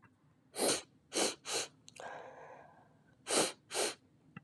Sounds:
Sniff